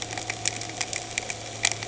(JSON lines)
{"label": "anthrophony, boat engine", "recorder": "HydroMoth"}